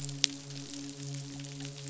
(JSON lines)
{"label": "biophony, midshipman", "recorder": "SoundTrap 500"}